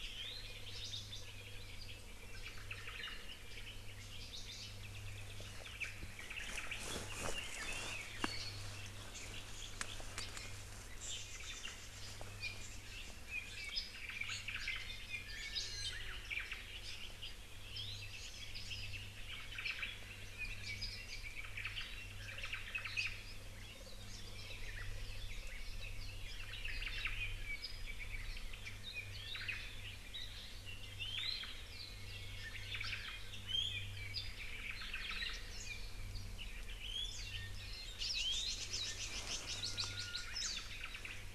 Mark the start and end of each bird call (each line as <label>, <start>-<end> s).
Apapane (Himatione sanguinea), 0.0-0.5 s
Northern Cardinal (Cardinalis cardinalis), 0.6-1.3 s
Omao (Myadestes obscurus), 2.3-3.2 s
Northern Cardinal (Cardinalis cardinalis), 3.9-4.8 s
Omao (Myadestes obscurus), 5.4-6.8 s
Red-billed Leiothrix (Leiothrix lutea), 6.9-8.6 s
Red-billed Leiothrix (Leiothrix lutea), 10.9-12.3 s
Omao (Myadestes obscurus), 11.2-11.8 s
Apapane (Himatione sanguinea), 12.4-12.6 s
Apapane (Himatione sanguinea), 13.2-14.1 s
Omao (Myadestes obscurus), 13.9-14.8 s
Iiwi (Drepanis coccinea), 14.2-14.5 s
Iiwi (Drepanis coccinea), 15.0-16.1 s
Omao (Myadestes obscurus), 16.0-16.6 s
Apapane (Himatione sanguinea), 17.6-18.1 s
Hawaii Amakihi (Chlorodrepanis virens), 18.0-18.6 s
Omao (Myadestes obscurus), 19.1-20.0 s
Red-billed Leiothrix (Leiothrix lutea), 20.2-21.5 s
Apapane (Himatione sanguinea), 20.6-20.8 s
Omao (Myadestes obscurus), 21.3-23.0 s
Apapane (Himatione sanguinea), 22.9-23.2 s
Omao (Myadestes obscurus), 26.6-27.3 s
Apapane (Himatione sanguinea), 26.6-28.6 s
Omao (Myadestes obscurus), 29.3-29.7 s
Iiwi (Drepanis coccinea), 30.9-31.5 s
Omao (Myadestes obscurus), 31.1-31.6 s
Omao (Myadestes obscurus), 32.7-33.2 s
Iiwi (Drepanis coccinea), 33.4-34.1 s
Apapane (Himatione sanguinea), 34.1-34.4 s
Omao (Myadestes obscurus), 34.5-35.4 s
Iiwi (Drepanis coccinea), 36.8-38.0 s
Red-billed Leiothrix (Leiothrix lutea), 37.9-40.3 s
Japanese Bush Warbler (Horornis diphone), 39.4-40.6 s
Warbling White-eye (Zosterops japonicus), 40.3-40.7 s
Omao (Myadestes obscurus), 40.6-41.3 s